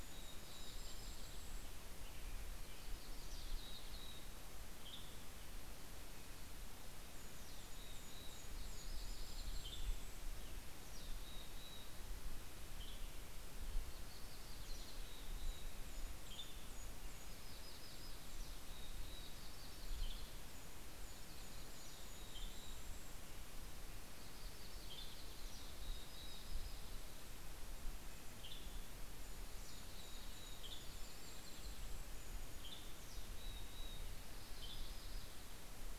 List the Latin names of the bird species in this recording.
Poecile gambeli, Regulus satrapa, Turdus migratorius, Setophaga coronata, Piranga ludoviciana, Sitta canadensis